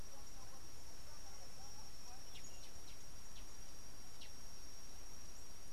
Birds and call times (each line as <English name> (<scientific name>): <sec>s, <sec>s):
Collared Sunbird (Hedydipna collaris): 2.4s